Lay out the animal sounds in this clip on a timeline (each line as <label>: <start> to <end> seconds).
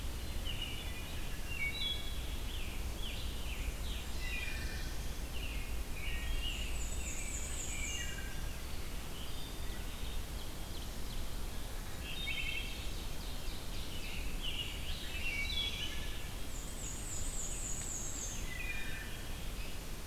Black-capped Chickadee (Poecile atricapillus): 0.1 to 0.9 seconds
Wood Thrush (Hylocichla mustelina): 0.4 to 2.4 seconds
Scarlet Tanager (Piranga olivacea): 1.9 to 4.6 seconds
Black-throated Blue Warbler (Setophaga caerulescens): 3.7 to 5.4 seconds
Wood Thrush (Hylocichla mustelina): 3.8 to 4.9 seconds
American Robin (Turdus migratorius): 5.2 to 8.1 seconds
Wood Thrush (Hylocichla mustelina): 5.8 to 6.6 seconds
Black-and-white Warbler (Mniotilta varia): 6.3 to 8.2 seconds
Wood Thrush (Hylocichla mustelina): 7.7 to 8.4 seconds
Wood Thrush (Hylocichla mustelina): 9.0 to 9.7 seconds
Ovenbird (Seiurus aurocapilla): 9.5 to 11.4 seconds
Black-capped Chickadee (Poecile atricapillus): 9.9 to 10.7 seconds
Wood Thrush (Hylocichla mustelina): 11.9 to 12.9 seconds
Ovenbird (Seiurus aurocapilla): 12.1 to 14.3 seconds
Scarlet Tanager (Piranga olivacea): 13.8 to 16.2 seconds
Black-throated Blue Warbler (Setophaga caerulescens): 14.8 to 16.0 seconds
Wood Thrush (Hylocichla mustelina): 14.8 to 15.9 seconds
Black-and-white Warbler (Mniotilta varia): 16.4 to 18.5 seconds
Hairy Woodpecker (Dryobates villosus): 18.1 to 18.3 seconds
Wood Thrush (Hylocichla mustelina): 18.4 to 19.3 seconds
Black-capped Chickadee (Poecile atricapillus): 18.6 to 19.6 seconds
Hairy Woodpecker (Dryobates villosus): 19.5 to 19.8 seconds